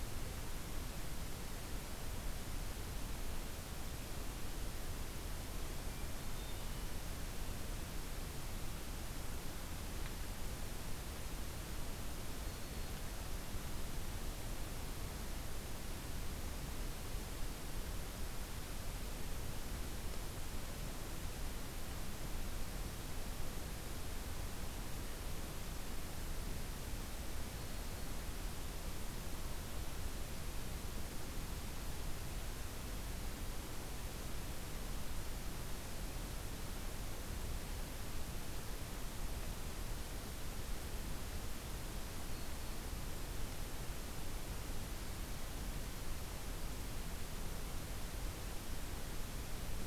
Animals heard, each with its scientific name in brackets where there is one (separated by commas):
Hermit Thrush (Catharus guttatus), Black-throated Green Warbler (Setophaga virens)